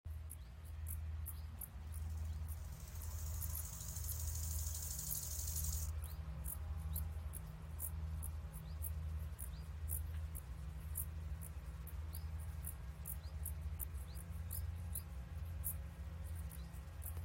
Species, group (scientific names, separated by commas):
Chorthippus biguttulus, Orthoptera